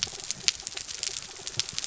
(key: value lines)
label: anthrophony, mechanical
recorder: SoundTrap 300